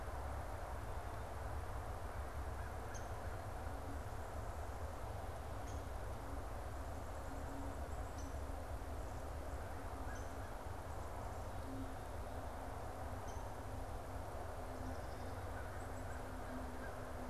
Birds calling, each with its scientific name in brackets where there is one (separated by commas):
Black-capped Chickadee (Poecile atricapillus), American Crow (Corvus brachyrhynchos), Downy Woodpecker (Dryobates pubescens)